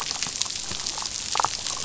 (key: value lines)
label: biophony, damselfish
recorder: SoundTrap 500